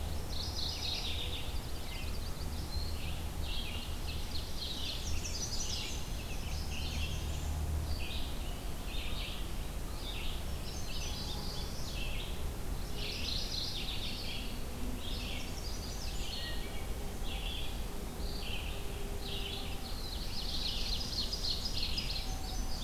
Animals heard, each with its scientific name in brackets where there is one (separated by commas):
Mourning Warbler (Geothlypis philadelphia), Wood Thrush (Hylocichla mustelina), American Robin (Turdus migratorius), Common Yellowthroat (Geothlypis trichas), Red-eyed Vireo (Vireo olivaceus), Ovenbird (Seiurus aurocapilla), Blackburnian Warbler (Setophaga fusca), Chestnut-sided Warbler (Setophaga pensylvanica), Black-throated Blue Warbler (Setophaga caerulescens)